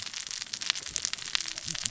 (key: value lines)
label: biophony, cascading saw
recorder: SoundTrap 600 or HydroMoth